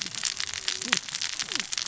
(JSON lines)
{"label": "biophony, cascading saw", "recorder": "SoundTrap 600 or HydroMoth"}